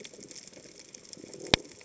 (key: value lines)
label: biophony
recorder: HydroMoth